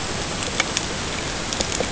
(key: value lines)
label: ambient
recorder: HydroMoth